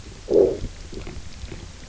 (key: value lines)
label: biophony, low growl
recorder: SoundTrap 300